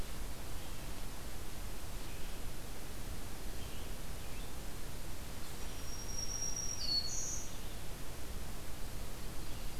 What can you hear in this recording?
Red-eyed Vireo, Black-throated Green Warbler